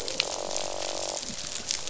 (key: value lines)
label: biophony, croak
recorder: SoundTrap 500